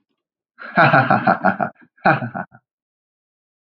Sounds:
Laughter